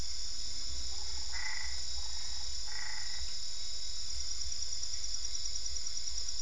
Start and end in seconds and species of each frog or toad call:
0.9	3.9	Boana albopunctata

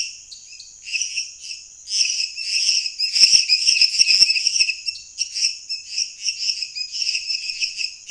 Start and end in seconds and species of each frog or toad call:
0.0	8.1	Dendropsophus minutus
0.2	0.8	Dendropsophus nanus
4.9	5.1	Dendropsophus nanus

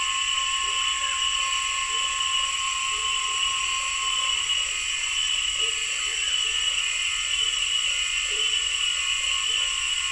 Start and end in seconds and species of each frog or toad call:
0.3	6.7	Boana lundii
4.3	7.1	Boana albopunctata
7.4	10.1	Boana lundii
9.5	10.1	Boana albopunctata

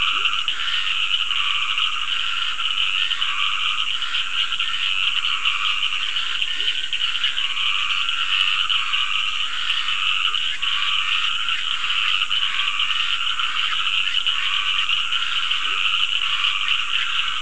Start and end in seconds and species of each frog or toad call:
0.0	0.5	Leptodactylus latrans
0.0	17.4	Dendropsophus nahdereri
0.0	17.4	Scinax perereca
6.3	6.9	Leptodactylus latrans
15.6	16.2	Leptodactylus latrans

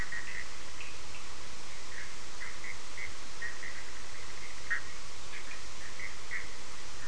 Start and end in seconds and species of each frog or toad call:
0.0	7.0	Boana bischoffi
0.2	1.3	Sphaenorhynchus surdus

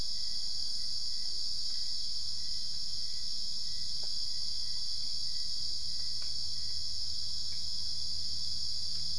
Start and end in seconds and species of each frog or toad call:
none

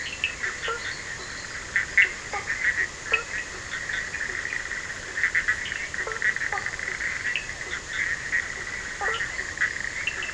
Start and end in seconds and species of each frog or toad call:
0.2	10.3	Sphaenorhynchus surdus
0.4	0.9	Boana faber
2.2	3.4	Boana faber
5.8	6.8	Boana faber
8.7	9.3	Boana faber

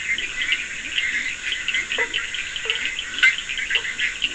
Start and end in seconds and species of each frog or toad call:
0.0	4.3	Boana bischoffi
0.0	4.3	Leptodactylus latrans
0.0	4.3	Scinax perereca
0.0	4.3	Sphaenorhynchus surdus
1.9	4.3	Boana faber

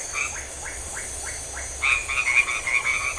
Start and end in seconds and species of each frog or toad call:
0.0	3.1	Leptodactylus notoaktites
1.7	3.1	Boana albomarginata

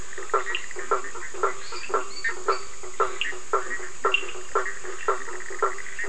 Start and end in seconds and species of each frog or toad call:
0.0	6.0	Boana faber
0.4	0.8	Sphaenorhynchus surdus
1.5	3.0	Dendropsophus minutus
3.0	4.4	Sphaenorhynchus surdus

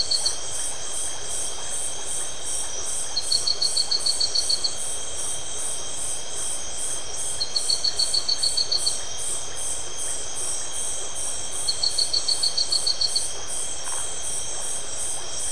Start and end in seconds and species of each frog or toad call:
0.0	15.5	Leptodactylus notoaktites
13.8	14.2	Phyllomedusa distincta

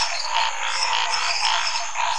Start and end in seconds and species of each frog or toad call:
0.0	1.7	Physalaemus albonotatus
0.0	2.1	Boana raniceps
0.0	2.1	Dendropsophus minutus
0.0	2.1	Physalaemus nattereri
0.0	2.1	Scinax fuscovarius

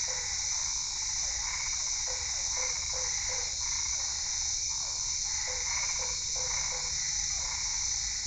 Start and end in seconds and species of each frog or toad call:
0.0	8.2	Boana albopunctata
1.1	8.2	Physalaemus cuvieri
2.0	3.7	Boana lundii
5.4	7.0	Boana lundii

